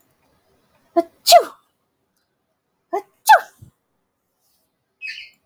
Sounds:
Sneeze